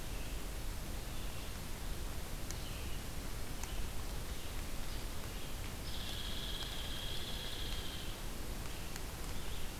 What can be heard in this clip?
Red-eyed Vireo, Hairy Woodpecker